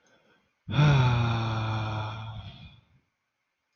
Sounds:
Sigh